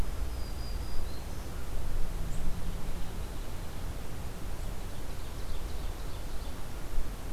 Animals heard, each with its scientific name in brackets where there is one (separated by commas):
Black-throated Green Warbler (Setophaga virens), Ovenbird (Seiurus aurocapilla)